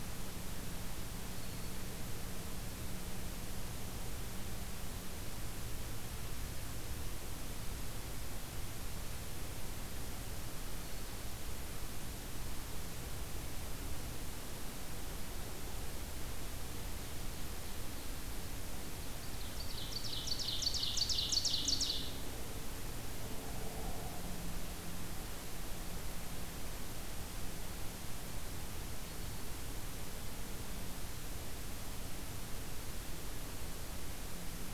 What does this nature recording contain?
Black-throated Green Warbler, Ovenbird